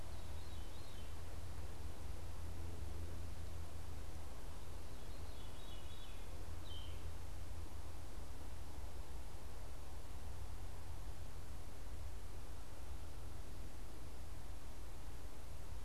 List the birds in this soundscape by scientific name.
Catharus fuscescens, Vireo flavifrons